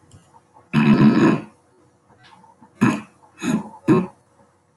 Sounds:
Throat clearing